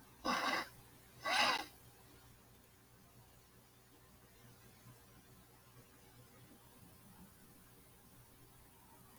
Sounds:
Sniff